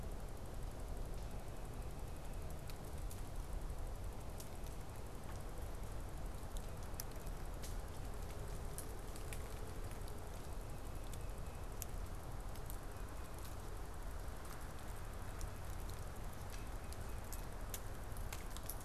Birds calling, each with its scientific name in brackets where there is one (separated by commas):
Tufted Titmouse (Baeolophus bicolor)